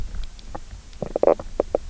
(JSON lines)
{"label": "biophony, knock croak", "recorder": "SoundTrap 300"}